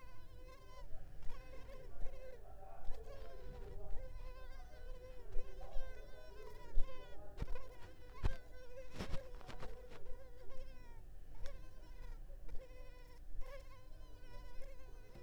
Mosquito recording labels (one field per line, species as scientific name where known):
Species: Culex pipiens complex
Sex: female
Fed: unfed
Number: one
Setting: cup